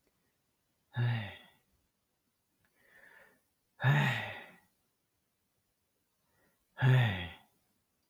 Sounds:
Sigh